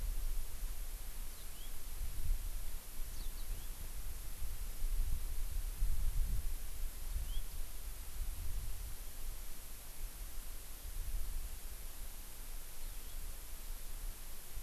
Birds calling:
Hawaii Amakihi (Chlorodrepanis virens), House Finch (Haemorhous mexicanus)

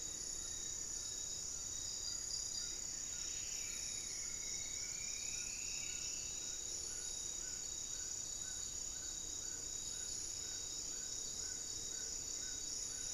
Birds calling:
Spot-winged Antshrike (Pygiptila stellaris), Goeldi's Antbird (Akletos goeldii), unidentified bird, Amazonian Trogon (Trogon ramonianus), Striped Woodcreeper (Xiphorhynchus obsoletus), Black-faced Antthrush (Formicarius analis)

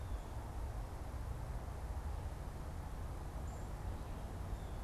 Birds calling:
Blue Jay (Cyanocitta cristata), Black-capped Chickadee (Poecile atricapillus)

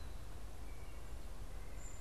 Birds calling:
White-breasted Nuthatch (Sitta carolinensis), American Goldfinch (Spinus tristis)

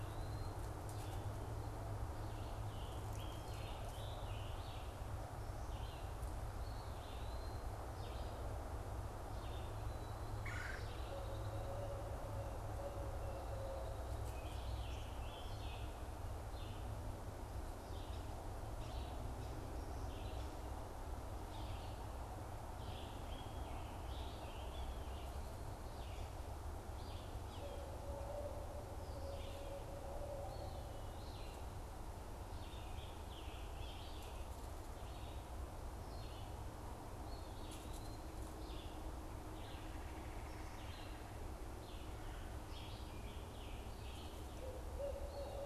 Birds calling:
Eastern Wood-Pewee (Contopus virens), Barred Owl (Strix varia), Red-eyed Vireo (Vireo olivaceus), Scarlet Tanager (Piranga olivacea), Red-bellied Woodpecker (Melanerpes carolinus)

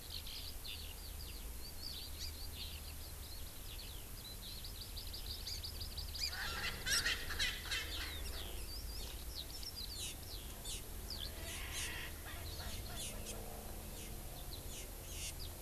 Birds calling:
Hawaii Amakihi (Chlorodrepanis virens), Erckel's Francolin (Pternistis erckelii), Eurasian Skylark (Alauda arvensis)

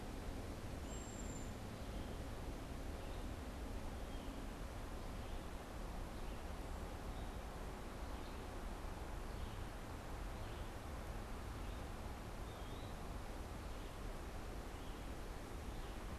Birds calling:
Red-eyed Vireo (Vireo olivaceus), Cedar Waxwing (Bombycilla cedrorum)

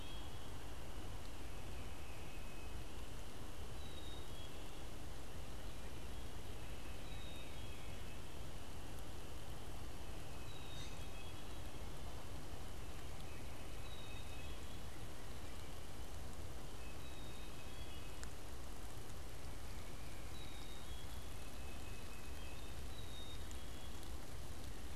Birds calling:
Black-capped Chickadee (Poecile atricapillus), Tufted Titmouse (Baeolophus bicolor)

